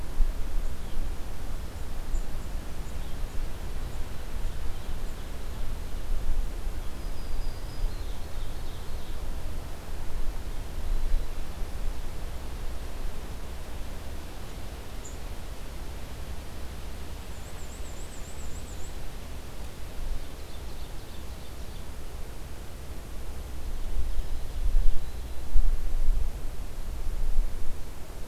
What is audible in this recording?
Black-throated Green Warbler, Ovenbird, Black-and-white Warbler